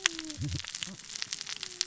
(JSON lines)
{"label": "biophony, cascading saw", "recorder": "SoundTrap 600 or HydroMoth"}